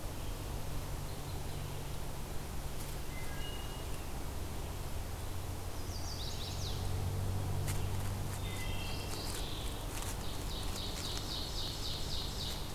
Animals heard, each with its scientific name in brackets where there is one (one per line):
Chestnut-sided Warbler (Setophaga pensylvanica)
Mourning Warbler (Geothlypis philadelphia)
Wood Thrush (Hylocichla mustelina)
Ovenbird (Seiurus aurocapilla)